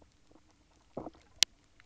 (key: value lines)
label: biophony, knock croak
recorder: SoundTrap 300